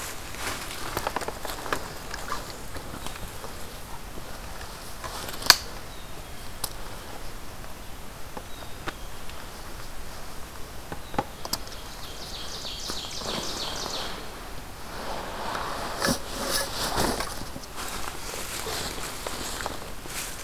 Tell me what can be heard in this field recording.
Black-capped Chickadee, Ovenbird